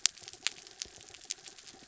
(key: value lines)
label: anthrophony, mechanical
recorder: SoundTrap 300